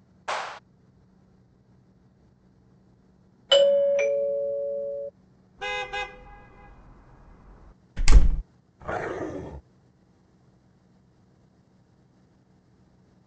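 At 0.28 seconds, clapping is audible. After that, at 3.48 seconds, a loud doorbell sounds. Afterwards, at 5.58 seconds, the sound of a vehicle horn comes through. Later, at 7.96 seconds, there is slamming. Following that, at 8.79 seconds, growling is heard.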